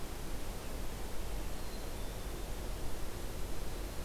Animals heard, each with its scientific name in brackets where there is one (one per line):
Black-capped Chickadee (Poecile atricapillus)